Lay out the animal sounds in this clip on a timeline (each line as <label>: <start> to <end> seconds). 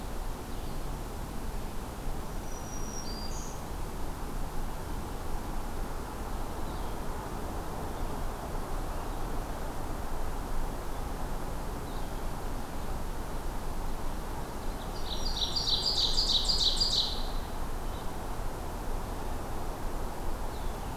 Black-throated Green Warbler (Setophaga virens): 2.1 to 3.8 seconds
Red-eyed Vireo (Vireo olivaceus): 6.6 to 12.5 seconds
Black-throated Green Warbler (Setophaga virens): 14.8 to 16.2 seconds
Ovenbird (Seiurus aurocapilla): 14.8 to 17.6 seconds
Red-eyed Vireo (Vireo olivaceus): 17.7 to 18.2 seconds
Red-eyed Vireo (Vireo olivaceus): 20.4 to 21.0 seconds